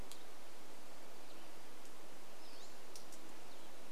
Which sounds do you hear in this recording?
Cassin's Vireo song, warbler song, Hutton's Vireo song, Pacific-slope Flycatcher call